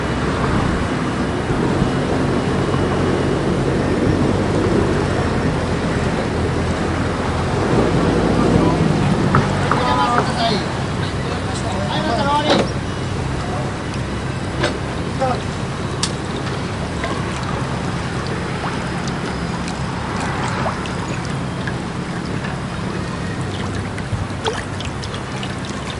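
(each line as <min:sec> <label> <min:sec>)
0:00.0 Raindrops fall steadily onto a wet surface, mixed with distant city traffic sounds. 0:09.3
0:09.4 Raindrops steadily fall onto wet surfaces, accompanied by distant city traffic and muffled conversation. 0:13.3
0:13.3 Raindrops fall steadily onto a wet surface, mixed with distant city traffic sounds. 0:26.0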